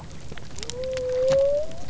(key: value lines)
label: biophony
recorder: SoundTrap 300